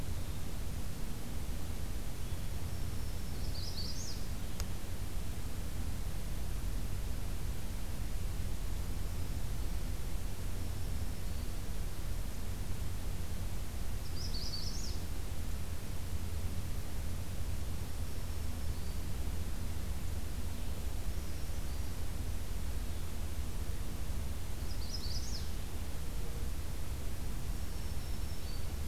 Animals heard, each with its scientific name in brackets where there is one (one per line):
Magnolia Warbler (Setophaga magnolia)
Brown Creeper (Certhia americana)
Black-throated Green Warbler (Setophaga virens)